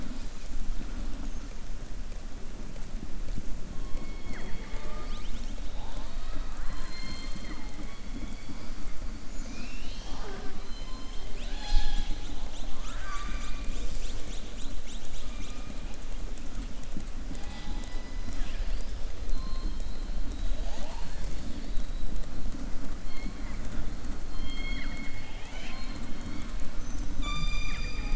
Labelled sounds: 10.6	11.2	killer whale, southern resident, 3.0 to 5.1 kHz
19.2	20.1	killer whale, southern resident, 3.1 to 4.3 kHz
23.0	23.6	killer whale, southern resident, 1.1 to 3.2 kHz
24.2	26.0	killer whale, southern resident, 0.76 to 6.7 kHz

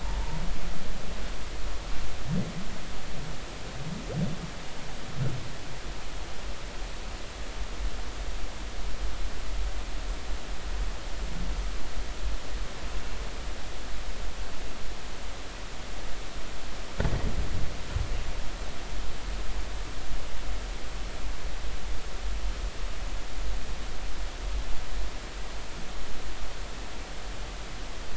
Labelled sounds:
0.0	0.4	humpback whale, 0.83 to 1.1 kHz

